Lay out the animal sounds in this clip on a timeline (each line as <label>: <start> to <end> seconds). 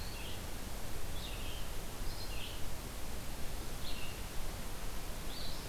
Red-eyed Vireo (Vireo olivaceus): 0.0 to 5.7 seconds